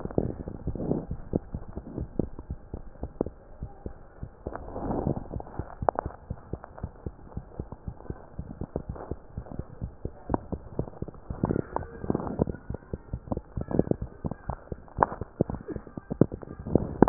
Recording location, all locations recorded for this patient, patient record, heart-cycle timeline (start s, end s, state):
mitral valve (MV)
aortic valve (AV)+pulmonary valve (PV)+tricuspid valve (TV)+mitral valve (MV)
#Age: Infant
#Sex: Female
#Height: 67.0 cm
#Weight: 9.46 kg
#Pregnancy status: False
#Murmur: Absent
#Murmur locations: nan
#Most audible location: nan
#Systolic murmur timing: nan
#Systolic murmur shape: nan
#Systolic murmur grading: nan
#Systolic murmur pitch: nan
#Systolic murmur quality: nan
#Diastolic murmur timing: nan
#Diastolic murmur shape: nan
#Diastolic murmur grading: nan
#Diastolic murmur pitch: nan
#Diastolic murmur quality: nan
#Outcome: Abnormal
#Campaign: 2015 screening campaign
0.00	3.34	unannotated
3.34	3.58	diastole
3.58	3.70	S1
3.70	3.82	systole
3.82	3.96	S2
3.96	4.20	diastole
4.20	4.30	S1
4.30	4.44	systole
4.44	4.58	S2
4.58	4.80	diastole
4.80	4.96	S1
4.96	5.04	systole
5.04	5.18	S2
5.18	5.34	diastole
5.34	5.44	S1
5.44	5.56	systole
5.56	5.66	S2
5.66	5.80	diastole
5.80	5.94	S1
5.94	6.04	systole
6.04	6.14	S2
6.14	6.28	diastole
6.28	6.38	S1
6.38	6.50	systole
6.50	6.60	S2
6.60	6.82	diastole
6.82	6.92	S1
6.92	7.04	systole
7.04	7.14	S2
7.14	7.34	diastole
7.34	7.44	S1
7.44	7.58	systole
7.58	7.68	S2
7.68	7.86	diastole
7.86	7.96	S1
7.96	8.06	systole
8.06	8.18	S2
8.18	8.38	diastole
8.38	8.50	S1
8.50	8.58	systole
8.58	8.68	S2
8.68	8.88	diastole
8.88	8.98	S1
8.98	9.10	systole
9.10	9.20	S2
9.20	9.36	diastole
9.36	9.46	S1
9.46	9.58	systole
9.58	9.66	S2
9.66	9.82	diastole
9.82	9.94	S1
9.94	10.04	systole
10.04	10.14	S2
10.14	10.30	diastole
10.30	10.42	S1
10.42	10.50	systole
10.50	10.60	S2
10.60	10.76	diastole
10.76	10.88	S1
10.88	11.00	systole
11.00	11.10	S2
11.10	11.28	diastole
11.28	17.09	unannotated